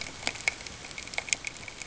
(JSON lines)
{"label": "ambient", "recorder": "HydroMoth"}